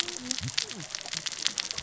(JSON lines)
{"label": "biophony, cascading saw", "recorder": "SoundTrap 600 or HydroMoth"}